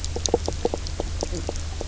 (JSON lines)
{"label": "biophony, knock croak", "recorder": "SoundTrap 300"}